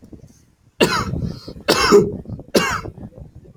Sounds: Cough